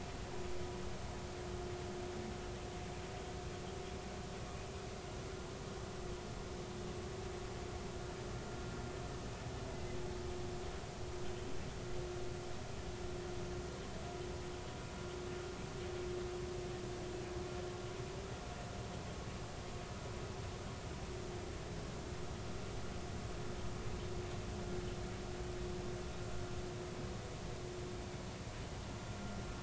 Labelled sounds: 9.7	10.0	humpback whale, 2.0 to 2.1 kHz

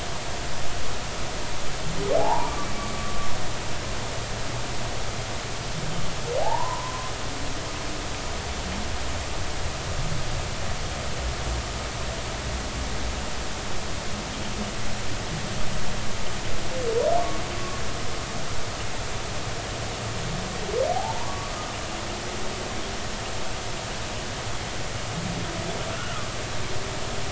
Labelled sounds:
2.2	2.7	humpback whale, 0.80 to 1.2 kHz
6.4	7.1	humpback whale, 0.80 to 1.1 kHz
20.9	21.5	humpback whale, 0.80 to 1.2 kHz
26.0	26.3	humpback whale, 1.1 to 1.5 kHz

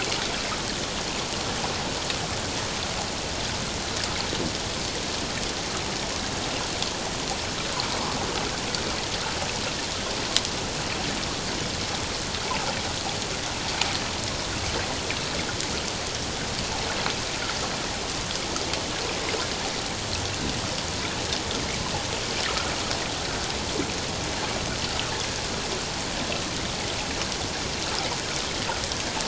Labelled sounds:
22.5	22.7	water noise, 1.2 to 1.5 kHz

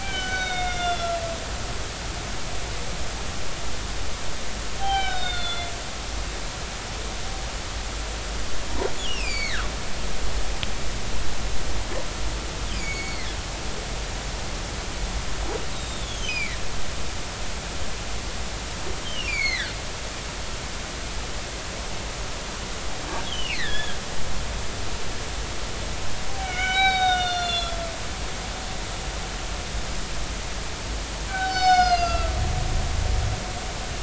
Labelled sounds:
0.0	1.2	humpback whale, 1.3 to 6.1 kHz
4.8	5.7	humpback whale, 0.80 to 5.4 kHz
9.0	9.7	humpback whale, 1.1 to 5.8 kHz
12.7	13.3	humpback whale, 1.9 to 7.0 kHz
15.7	16.6	humpback whale, 1.8 to 4.0 kHz
19.0	19.7	humpback whale, 1.4 to 7.0 kHz
23.2	24.0	humpback whale, 1.6 to 5.2 kHz
26.4	27.8	humpback whale, 0.80 to 6.9 kHz
31.3	32.3	humpback whale, 0.80 to 6.8 kHz

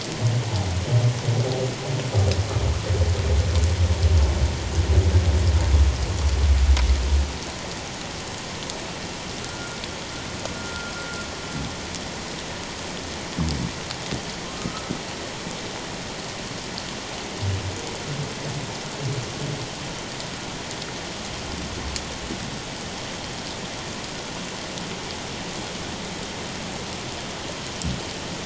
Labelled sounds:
9.4	9.8	humpback whale, 1.3 to 1.5 kHz
10.6	10.9	humpback whale, 1.3 to 1.5 kHz
14.5	14.9	humpback whale, 1.2 to 1.3 kHz

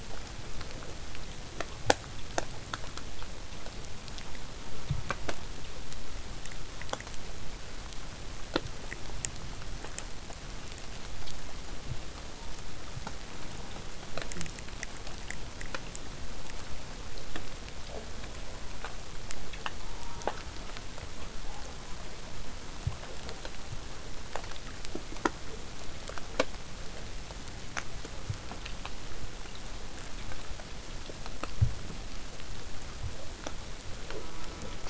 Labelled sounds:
4.6	5.4	killer whale, southern resident, J pod, call S04, 0.27 to 1.2 kHz
12.3	12.8	killer whale, southern resident, J pod, call S04, 0.19 to 1.4 kHz
13.3	13.8	killer whale, southern resident, J pod, call S04, 0.15 to 1.5 kHz
19.8	20.4	killer whale, southern resident, J pod, call S04, 0.31 to 1.5 kHz
34.1	34.8	killer whale, southern resident, J pod, call S04, 0.19 to 1.5 kHz

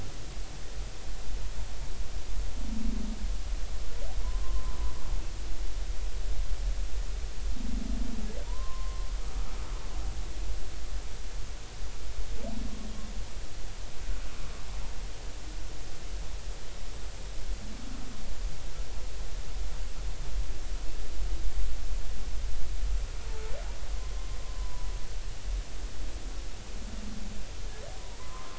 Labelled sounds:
4.2	4.9	humpback whale, 0.96 to 1.2 kHz
8.4	9.1	humpback whale, 0.90 to 1.1 kHz
24.0	24.9	humpback whale, 0.93 to 1.1 kHz
28.0	28.5	humpback whale, 0.90 to 1.3 kHz

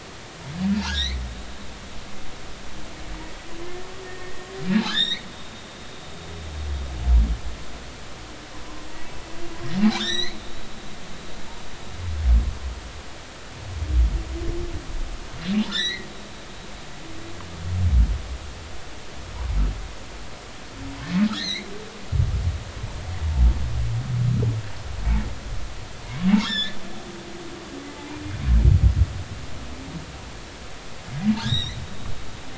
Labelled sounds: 0.8	1.2	humpback whale, 1.3 to 4.2 kHz
4.0	5.2	humpback whale, 1.5 to 7.6 kHz
10.0	10.4	humpback whale, 1.3 to 6.3 kHz
15.7	16.1	humpback whale, 1.7 to 4.3 kHz
21.3	21.7	humpback whale, 1.6 to 4.4 kHz
26.4	26.8	humpback whale, 1.6 to 5.5 kHz
31.4	31.8	humpback whale, 1.6 to 5.9 kHz

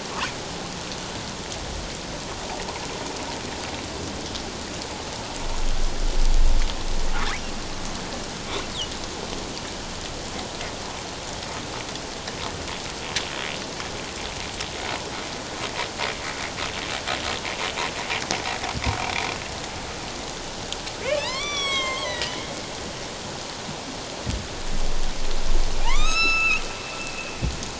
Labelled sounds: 21.0	22.4	humpback whale, 0.81 to 8.0 kHz
25.8	26.6	humpback whale, 0.78 to 8.0 kHz

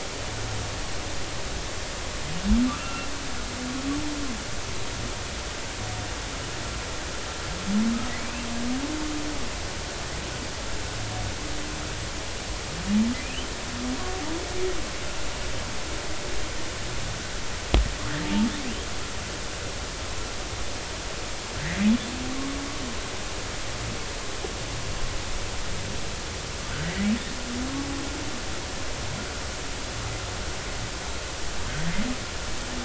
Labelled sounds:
2.7	3.1	humpback whale, 1.1 to 2.8 kHz
8.2	8.5	humpback whale, 2.2 to 2.8 kHz
13.2	13.5	humpback whale, 2.3 to 3.2 kHz
22.3	22.6	humpback whale, 0.99 to 1.2 kHz

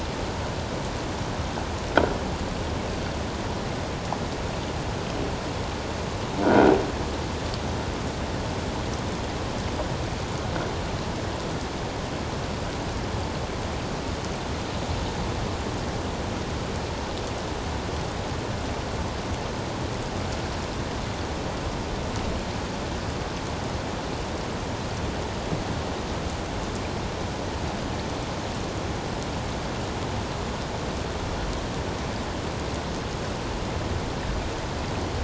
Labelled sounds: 6.4	6.7	croaking sound likely from a nearby submerged object, 1.4 to 1.7 kHz

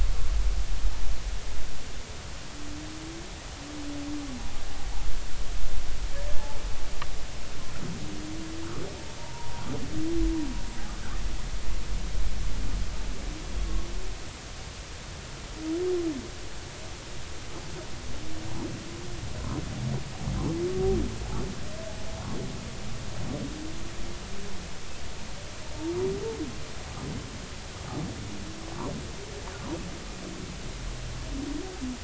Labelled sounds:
9.2	9.5	humpback whale, 0.80 to 1.0 kHz

